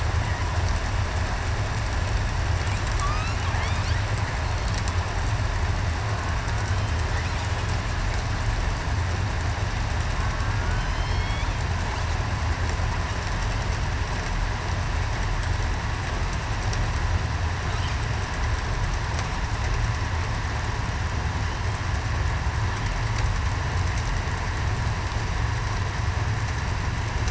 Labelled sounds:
3.0	3.3	killer whale, southern resident, 1.1 to 1.4 kHz
10.7	11.5	killer whale, southern resident, 2.1 to 5.5 kHz

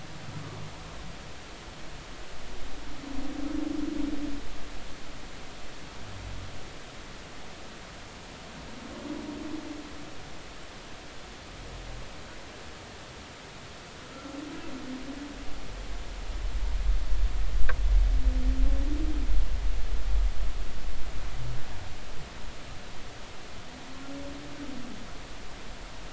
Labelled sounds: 14.1	14.4	humpback whale, 1.3 to 1.4 kHz

